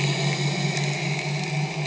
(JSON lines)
{"label": "anthrophony, boat engine", "recorder": "HydroMoth"}